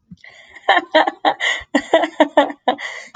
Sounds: Laughter